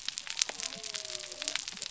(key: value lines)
label: biophony
recorder: SoundTrap 300